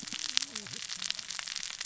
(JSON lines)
{"label": "biophony, cascading saw", "recorder": "SoundTrap 600 or HydroMoth"}